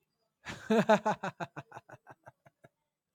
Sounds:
Laughter